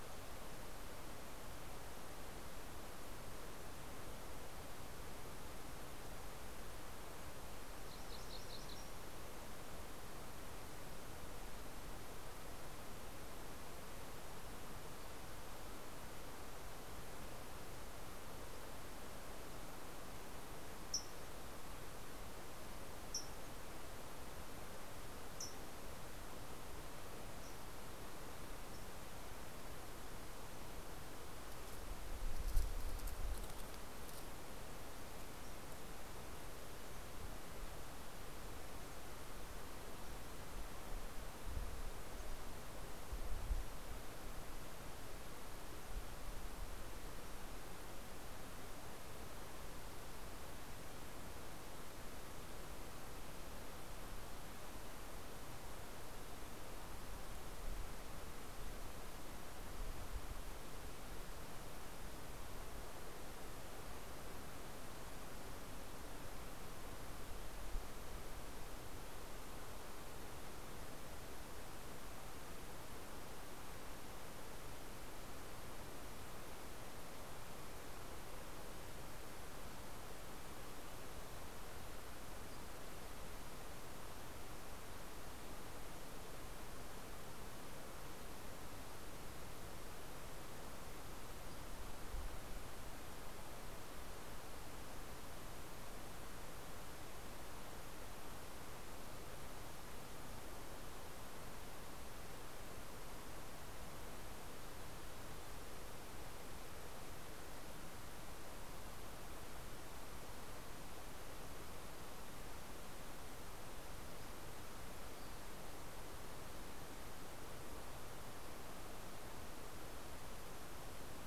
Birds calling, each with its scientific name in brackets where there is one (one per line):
Fox Sparrow (Passerella iliaca)
MacGillivray's Warbler (Geothlypis tolmiei)